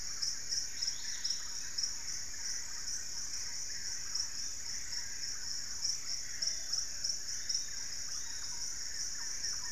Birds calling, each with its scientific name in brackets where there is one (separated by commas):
Plumbeous Pigeon (Patagioenas plumbea), Black-fronted Nunbird (Monasa nigrifrons), Yellow-margined Flycatcher (Tolmomyias assimilis), Dusky-capped Greenlet (Pachysylvia hypoxantha), Wing-barred Piprites (Piprites chloris)